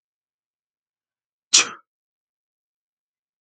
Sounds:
Sneeze